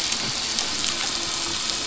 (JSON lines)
{"label": "anthrophony, boat engine", "recorder": "SoundTrap 500"}